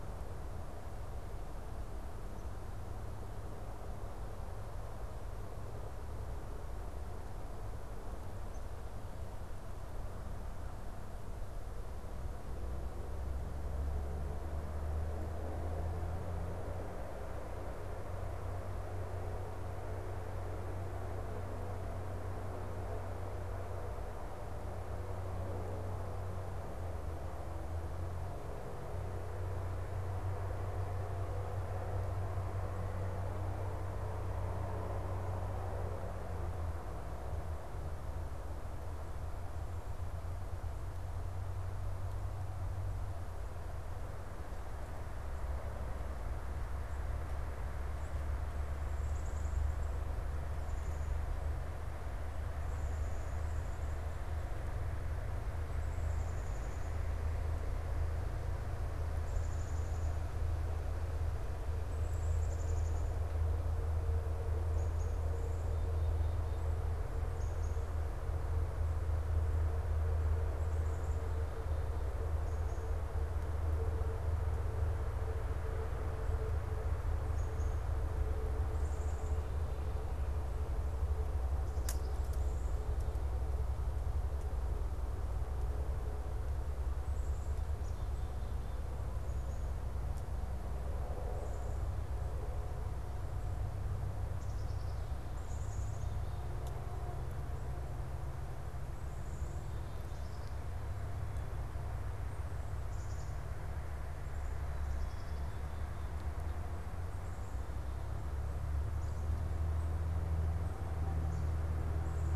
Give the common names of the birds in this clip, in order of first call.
Black-capped Chickadee